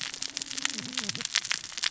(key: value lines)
label: biophony, cascading saw
recorder: SoundTrap 600 or HydroMoth